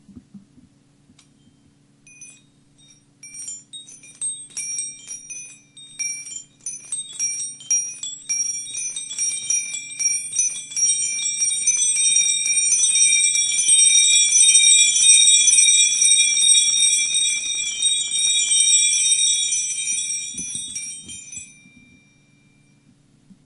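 Eight antique rotating doorbells ring metallically with gradually increasing and decreasing volume. 2.0 - 21.5

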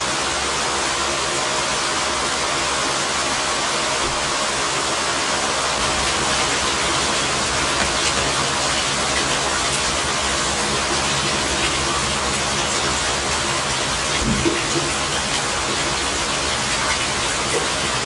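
Very high-pitched rain that sounds like noise due to heavy compression. 0.1 - 18.0

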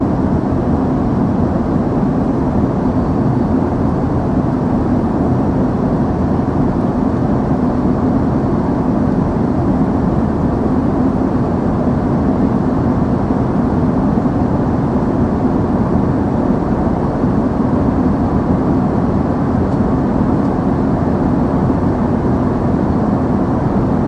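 An aircraft is flying loudbirdly with steady cabin noise. 0.0 - 24.1

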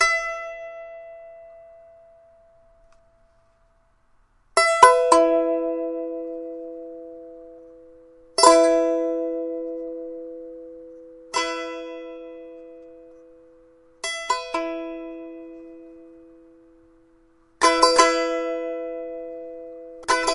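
A guitar string is picked once, and the sound fades away. 0.0 - 1.4
Guitar chords being played in sequence. 4.5 - 7.7
Guitar chords are played repeatedly and then fade away. 8.3 - 13.0
Guitar chords are played and then fade away. 14.0 - 16.2
Guitar chords being played with some fading in the middle. 17.6 - 20.3

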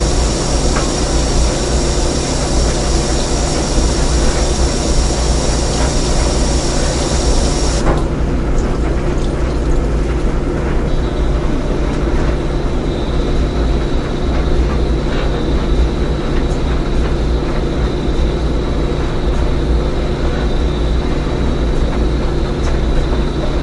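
A washing machine is running. 0.0 - 23.6
Water is slowly dripping. 8.3 - 10.9
A high-pitched sound is heard in the background. 10.9 - 23.6

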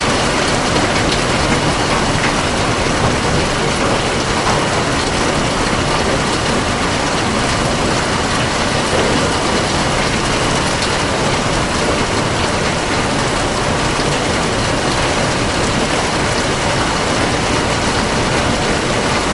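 Continuous loud sound of water being poured. 0.1 - 19.3

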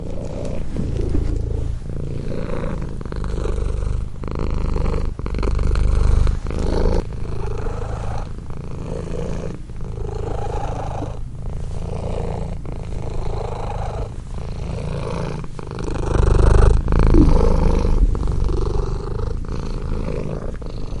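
A cat is loudly purring continuously. 0.1 - 21.0

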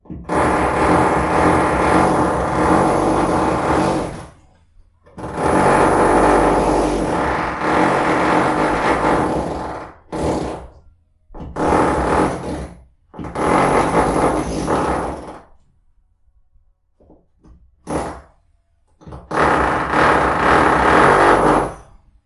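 A loud drill whirrs repeatedly. 0.0 - 15.7
A loud drill whirrs repeatedly. 17.8 - 22.2

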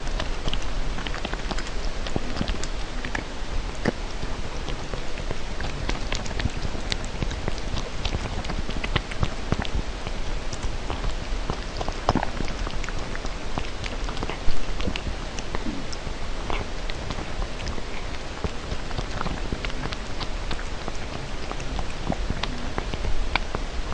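An animal repeatedly chews food. 0.0 - 23.9
An animal swallowing food. 12.0 - 12.4
An animal is exhaling. 14.3 - 14.8
An animal is exhaling. 16.4 - 16.9

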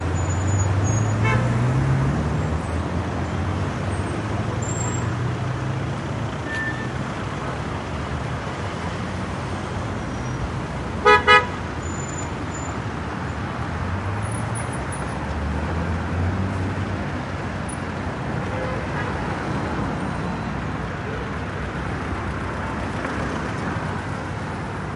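A car engine is running. 0.0 - 1.2
A car horn beeps. 1.1 - 1.4
Constant traffic sounds with car engines and braking noises. 1.4 - 11.0
A car horn beeps repeatedly. 11.0 - 11.5
Continuous outdoor traffic sounds of cars. 11.5 - 24.8

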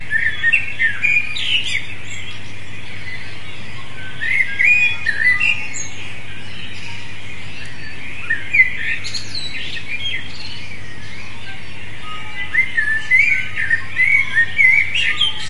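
Birds singing with an occasional nearby bird whistling. 0.0 - 15.5

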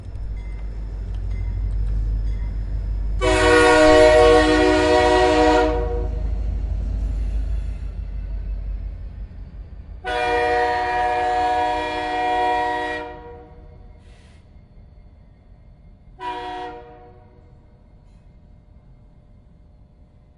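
Sounds of a train on the tracks. 0.1 - 20.4
A train horn sounds loudly and closely. 2.9 - 6.6
A train horn sounds. 9.9 - 13.4
A train horn sounds briefly. 15.7 - 17.2

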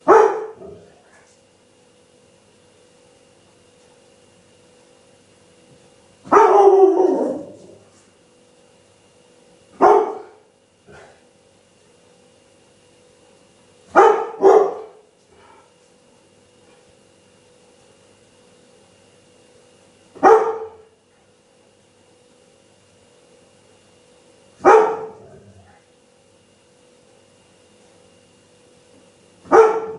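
A dog barks sharply. 0.2 - 30.0

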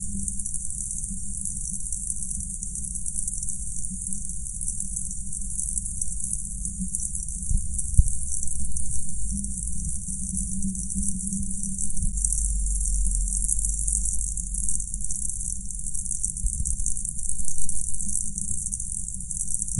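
Muffled and repeated sound of rain falling outdoors. 0.0 - 19.8

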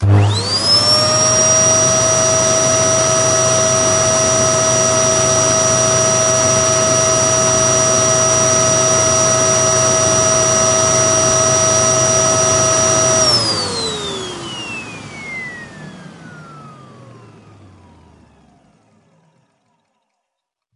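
A vacuum cleaner starts operating. 0.0 - 0.6
A vacuum cleaner is running indoors. 0.6 - 13.5
A vacuum cleaner gradually reducing in volume and stopping. 13.5 - 20.8

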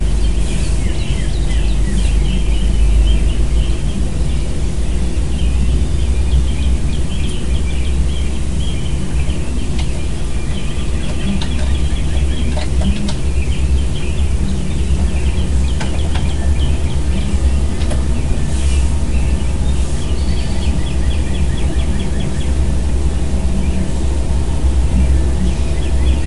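A bird chirping. 0.0 - 26.3

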